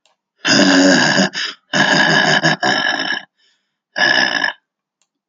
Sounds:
Sigh